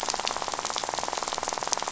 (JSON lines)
{"label": "biophony, rattle", "recorder": "SoundTrap 500"}